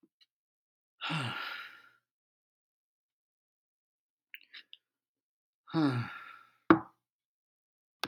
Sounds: Sigh